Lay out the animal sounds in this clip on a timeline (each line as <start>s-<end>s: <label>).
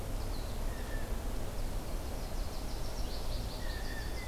0.1s-0.6s: American Goldfinch (Spinus tristis)
0.6s-1.3s: Blue Jay (Cyanocitta cristata)
1.9s-4.3s: American Goldfinch (Spinus tristis)
3.5s-4.3s: Blue Jay (Cyanocitta cristata)